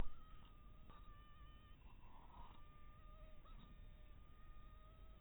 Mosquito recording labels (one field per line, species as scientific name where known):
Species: mosquito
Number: one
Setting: cup